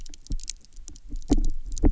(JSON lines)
{"label": "biophony, double pulse", "recorder": "SoundTrap 300"}